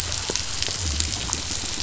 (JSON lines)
{"label": "biophony", "recorder": "SoundTrap 500"}